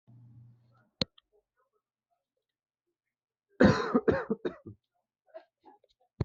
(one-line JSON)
{"expert_labels": [{"quality": "good", "cough_type": "dry", "dyspnea": false, "wheezing": false, "stridor": false, "choking": false, "congestion": false, "nothing": true, "diagnosis": "healthy cough", "severity": "pseudocough/healthy cough"}], "age": 25, "gender": "male", "respiratory_condition": false, "fever_muscle_pain": false, "status": "healthy"}